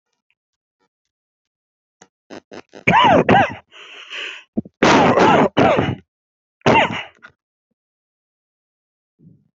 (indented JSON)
{
  "expert_labels": [
    {
      "quality": "ok",
      "cough_type": "unknown",
      "dyspnea": false,
      "wheezing": true,
      "stridor": false,
      "choking": false,
      "congestion": false,
      "nothing": false,
      "diagnosis": "obstructive lung disease",
      "severity": "mild"
    }
  ],
  "age": 24,
  "gender": "female",
  "respiratory_condition": false,
  "fever_muscle_pain": false,
  "status": "healthy"
}